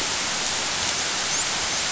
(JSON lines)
{"label": "biophony, dolphin", "recorder": "SoundTrap 500"}